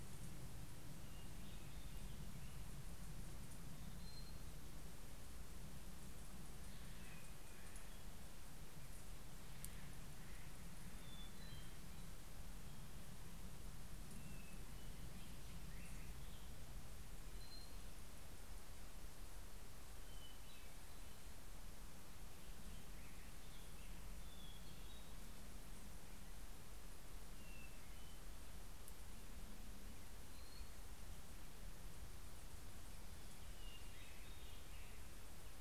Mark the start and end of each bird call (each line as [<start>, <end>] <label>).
[3.50, 4.60] Hermit Thrush (Catharus guttatus)
[6.30, 11.00] Steller's Jay (Cyanocitta stelleri)
[10.70, 12.30] Hermit Thrush (Catharus guttatus)
[14.20, 15.10] Hermit Thrush (Catharus guttatus)
[16.90, 18.20] Hermit Thrush (Catharus guttatus)
[19.80, 21.20] Hermit Thrush (Catharus guttatus)
[23.20, 25.50] Hermit Thrush (Catharus guttatus)
[27.00, 28.50] Hermit Thrush (Catharus guttatus)
[30.00, 31.20] Hermit Thrush (Catharus guttatus)
[33.20, 35.60] Hermit Thrush (Catharus guttatus)